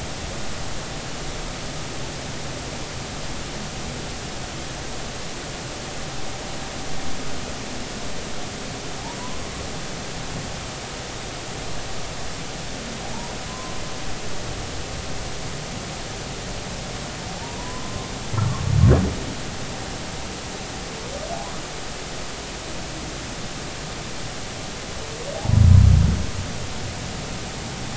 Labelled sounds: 13.5	13.8	humpback whale, 0.96 to 1.1 kHz
17.6	18.1	humpback whale, 0.93 to 1.1 kHz
25.4	25.6	humpback whale, 0.80 to 1.0 kHz

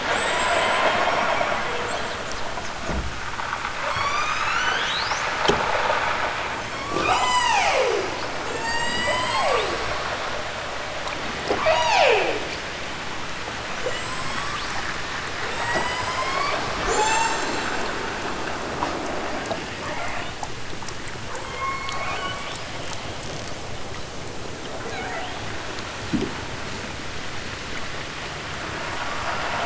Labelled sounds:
0.0	2.1	killer whale, southern Alaska resident, 3.5 to 8.0 kHz
3.7	5.3	killer whale, southern Alaska resident, 0.69 to 8.0 kHz
6.5	8.2	killer whale, southern Alaska resident, 0.23 to 8.0 kHz
8.5	10.3	killer whale, southern Alaska resident, 0.18 to 8.0 kHz
11.6	12.5	killer whale, southern Alaska resident, 0.37 to 8.0 kHz
13.8	15.0	killer whale, southern Alaska resident, 2.3 to 8.0 kHz
15.5	18.0	killer whale, southern Alaska resident, 0.32 to 8.0 kHz
19.8	20.4	killer whale, southern Alaska resident, 0.32 to 4.2 kHz
21.2	22.8	killer whale, southern Alaska resident, 0.37 to 8.0 kHz
24.8	25.6	killer whale, southern Alaska resident, 0.46 to 7.0 kHz

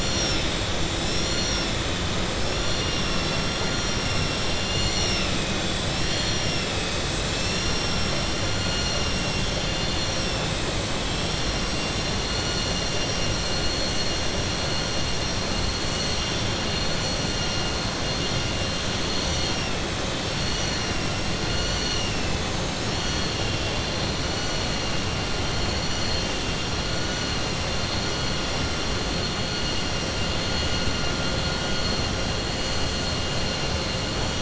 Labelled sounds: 20.4	21.2	vessel noise, 4.7 to 6.6 kHz
23.0	23.8	vessel noise, 2.7 to 4.2 kHz

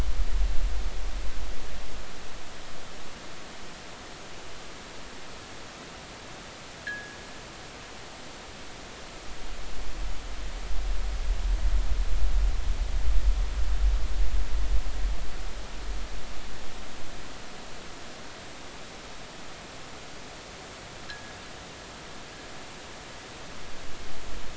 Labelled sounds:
6.9	7.2	fishing gear, 1.5 to 1.9 kHz
21.1	21.3	fishing gear, 1.5 to 1.7 kHz

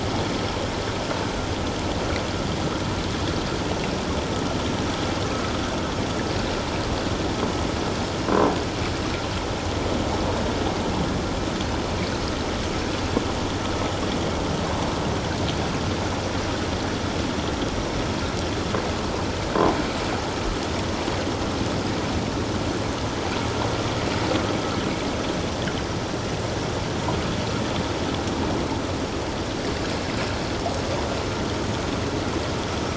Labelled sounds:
8.2	8.5	croaking sound likely from a nearby submerged object, 0.94 to 1.2 kHz

